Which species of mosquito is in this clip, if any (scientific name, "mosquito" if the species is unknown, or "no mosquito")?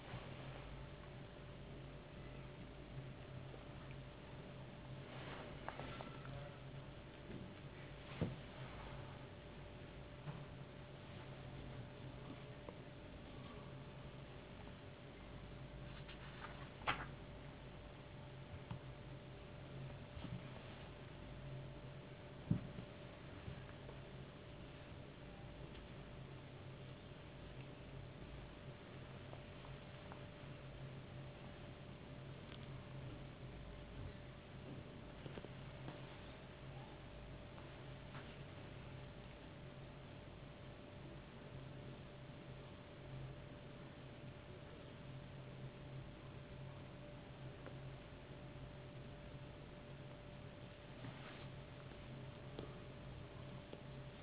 no mosquito